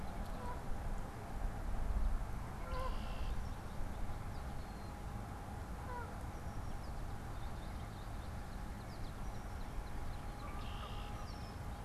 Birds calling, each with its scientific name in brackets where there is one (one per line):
Northern Cardinal (Cardinalis cardinalis)
Canada Goose (Branta canadensis)
American Goldfinch (Spinus tristis)
Red-winged Blackbird (Agelaius phoeniceus)